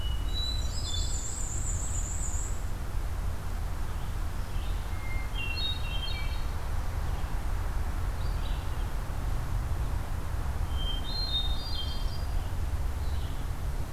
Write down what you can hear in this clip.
Hermit Thrush, Black-and-white Warbler, Red-eyed Vireo